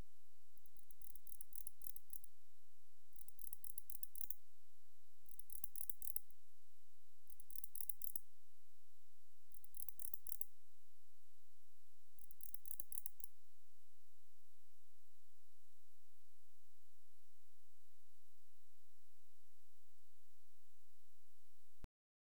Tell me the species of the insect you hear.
Barbitistes yersini